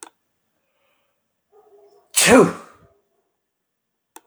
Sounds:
Sneeze